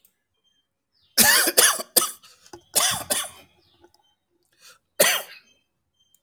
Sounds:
Cough